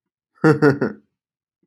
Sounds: Laughter